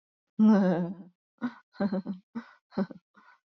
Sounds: Laughter